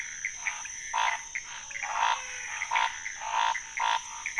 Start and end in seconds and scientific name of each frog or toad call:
0.0	4.3	Pithecopus azureus
0.0	4.3	Scinax fuscovarius
1.5	2.8	Physalaemus albonotatus